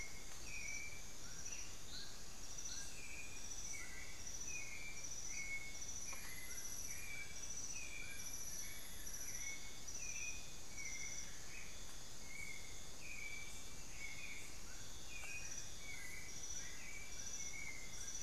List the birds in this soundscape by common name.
Dull-capped Attila, White-necked Thrush, Cinnamon-throated Woodcreeper